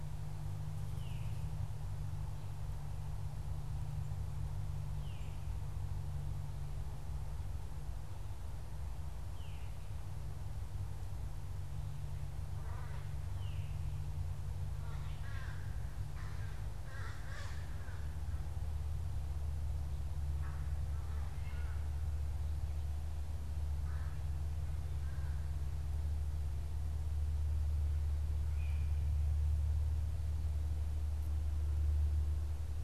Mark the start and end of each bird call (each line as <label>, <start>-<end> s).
Veery (Catharus fuscescens), 0.0-14.0 s
American Crow (Corvus brachyrhynchos), 12.3-25.7 s
unidentified bird, 28.4-29.1 s